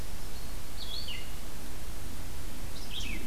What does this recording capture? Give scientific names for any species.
Vireo olivaceus